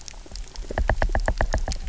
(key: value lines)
label: biophony, knock
recorder: SoundTrap 300